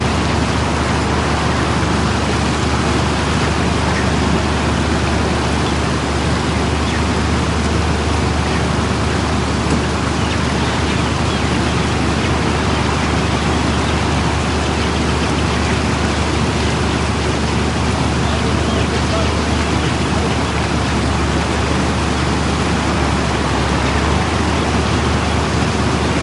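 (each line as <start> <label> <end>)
0.0 A river flows. 26.2
3.8 A bird is whistling. 4.8
5.5 A bird whistles. 21.2
18.6 People talking. 22.6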